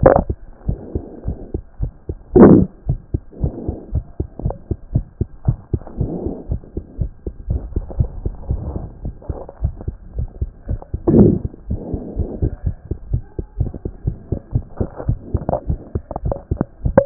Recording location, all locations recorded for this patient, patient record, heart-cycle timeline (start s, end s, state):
mitral valve (MV)
aortic valve (AV)+mitral valve (MV)
#Age: Adolescent
#Sex: Female
#Height: 115.0 cm
#Weight: 18.6 kg
#Pregnancy status: False
#Murmur: Absent
#Murmur locations: nan
#Most audible location: nan
#Systolic murmur timing: nan
#Systolic murmur shape: nan
#Systolic murmur grading: nan
#Systolic murmur pitch: nan
#Systolic murmur quality: nan
#Diastolic murmur timing: nan
#Diastolic murmur shape: nan
#Diastolic murmur grading: nan
#Diastolic murmur pitch: nan
#Diastolic murmur quality: nan
#Outcome: Normal
#Campaign: 2014 screening campaign
0.00	2.79	unannotated
2.79	2.88	diastole
2.88	2.98	S1
2.98	3.12	systole
3.12	3.18	S2
3.18	3.40	diastole
3.40	3.52	S1
3.52	3.66	systole
3.66	3.76	S2
3.76	3.92	diastole
3.92	4.04	S1
4.04	4.18	systole
4.18	4.28	S2
4.28	4.44	diastole
4.44	4.54	S1
4.54	4.68	systole
4.68	4.78	S2
4.78	4.94	diastole
4.94	5.04	S1
5.04	5.18	systole
5.18	5.28	S2
5.28	5.46	diastole
5.46	5.58	S1
5.58	5.72	systole
5.72	5.82	S2
5.82	5.98	diastole
5.98	6.10	S1
6.10	6.24	systole
6.24	6.34	S2
6.34	6.50	diastole
6.50	6.60	S1
6.60	6.74	systole
6.74	6.84	S2
6.84	7.00	diastole
7.00	7.10	S1
7.10	7.24	systole
7.24	7.34	S2
7.34	7.50	diastole
7.50	7.62	S1
7.62	7.74	systole
7.74	7.84	S2
7.84	7.98	diastole
7.98	8.10	S1
8.10	8.22	systole
8.22	8.32	S2
8.32	8.50	diastole
8.50	8.60	S1
8.60	8.74	systole
8.74	8.82	S2
8.82	9.04	diastole
9.04	9.14	S1
9.14	9.28	systole
9.28	9.38	S2
9.38	9.62	diastole
9.62	9.74	S1
9.74	9.86	systole
9.86	9.96	S2
9.96	10.18	diastole
10.18	10.28	S1
10.28	10.40	systole
10.40	10.50	S2
10.50	10.68	diastole
10.68	10.79	S1
10.79	10.90	systole
10.90	10.97	S2
10.97	11.07	diastole
11.07	17.06	unannotated